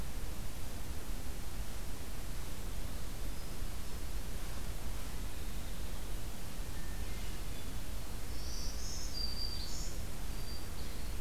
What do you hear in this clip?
Hermit Thrush, Black-throated Green Warbler